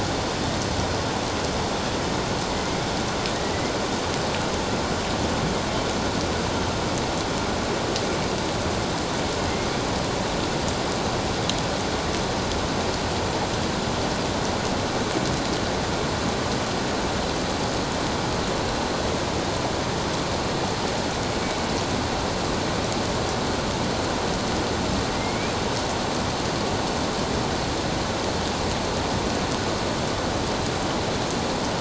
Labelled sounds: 2.5	2.9	killer whale, northern resident, A clan, 2.0 to 2.3 kHz
25.1	25.5	killer whale, northern resident, A clan, 2.0 to 2.6 kHz

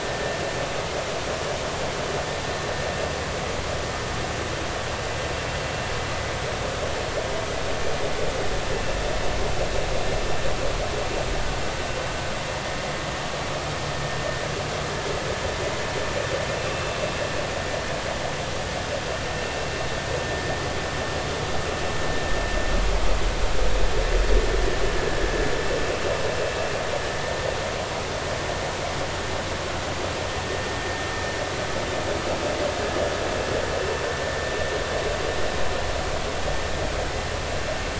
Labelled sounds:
16.5	17.0	vessel noise, 2.6 to 2.7 kHz

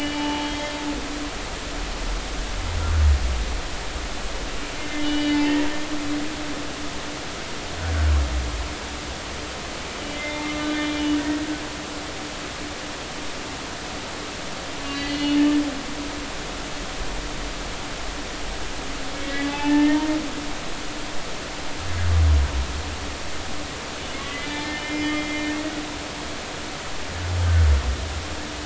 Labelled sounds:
5.0	5.4	humpback whale, 2.9 to 3.0 kHz
10.1	11.0	humpback whale, 1.2 to 3.6 kHz
14.8	15.4	humpback whale, 1.9 to 4.7 kHz
19.2	20.1	humpback whale, 0.80 to 3.1 kHz
24.2	25.5	humpback whale, 1.1 to 3.6 kHz
27.4	27.7	humpback whale, 1.4 to 1.6 kHz

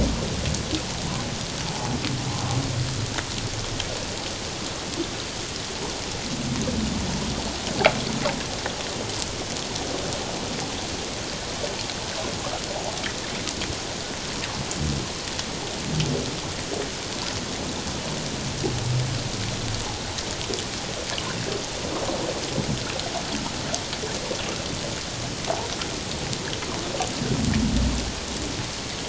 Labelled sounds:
1.6	1.9	humpback whale, 0.78 to 0.94 kHz

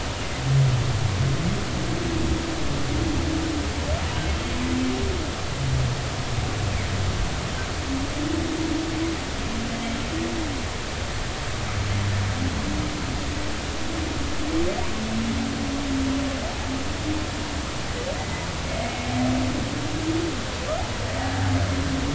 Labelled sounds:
4.0	4.3	humpback whale, 2.8 to 3.0 kHz
18.2	18.5	humpback whale, 2.0 to 2.1 kHz

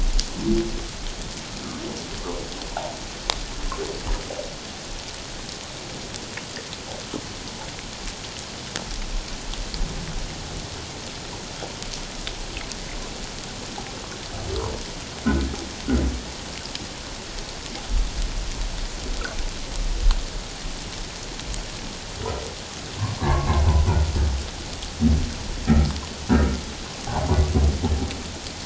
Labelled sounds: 23.2	23.7	humpback whale, 0.84 to 1.2 kHz
25.7	26.0	humpback whale, 1.2 to 1.4 kHz
27.0	27.3	humpback whale, 0.78 to 1.2 kHz

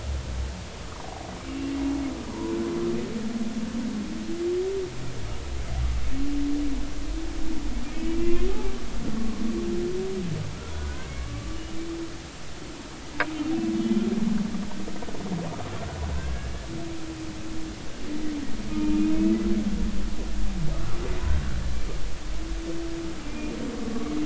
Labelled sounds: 0.8	1.0	humpback whale, 0.93 to 1.3 kHz
1.5	2.5	humpback whale, 0.90 to 2.9 kHz
7.9	8.5	humpback whale, 0.99 to 2.5 kHz
9.1	9.4	humpback whale, 1.1 to 1.2 kHz
10.7	11.6	humpback whale, 1.1 to 2.3 kHz
13.8	14.1	humpback whale, 2.9 to 3.2 kHz
16.2	16.5	humpback whale, 1.5 to 1.8 kHz
18.7	19.3	humpback whale, 0.86 to 2.7 kHz
23.3	23.6	humpback whale, 2.3 to 2.5 kHz

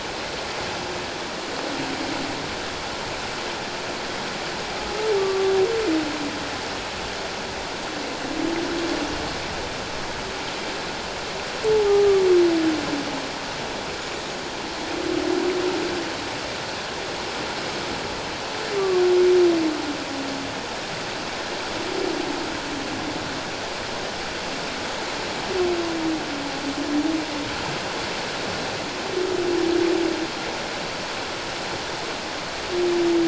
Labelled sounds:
5.2	5.5	humpback whale, 1.1 to 1.2 kHz
11.7	12.1	humpback whale, 0.78 to 0.91 kHz
18.8	19.0	humpback whale, 1.0 to 1.2 kHz

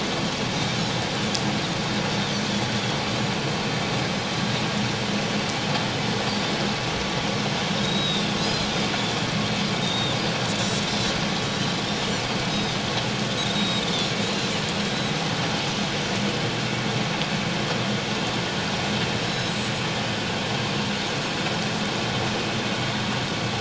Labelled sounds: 7.8	8.7	Pacific white-sided dolphin, 3.4 to 5.1 kHz
9.7	11.1	Pacific white-sided dolphin, 3.4 to 4.1 kHz
11.8	12.8	Pacific white-sided dolphin, 4.8 to 5.7 kHz
13.5	14.5	Pacific white-sided dolphin, 3.3 to 7.6 kHz
19.3	19.7	Pacific white-sided dolphin, 3.8 to 7.9 kHz

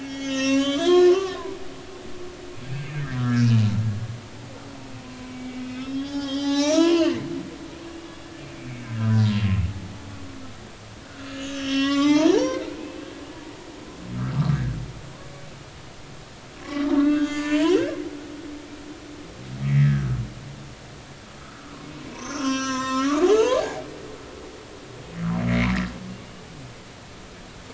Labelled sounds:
0.0	1.6	humpback whale, 0.93 to 6.9 kHz
2.7	3.6	humpback whale, 1.2 to 2.6 kHz
5.0	7.2	humpback whale, 0.80 to 7.3 kHz
8.7	9.3	humpback whale, 1.2 to 2.3 kHz
11.1	13.1	humpback whale, 0.80 to 7.5 kHz
16.6	18.0	humpback whale, 0.90 to 7.1 kHz
19.6	20.2	humpback whale, 1.4 to 2.4 kHz
21.4	21.7	humpback whale, 1.2 to 1.6 kHz
22.1	23.8	humpback whale, 0.80 to 7.7 kHz
25.5	25.7	humpback whale, 1.9 to 2.4 kHz

